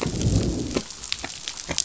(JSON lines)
{"label": "biophony, growl", "recorder": "SoundTrap 500"}